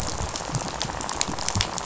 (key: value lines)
label: biophony, rattle
recorder: SoundTrap 500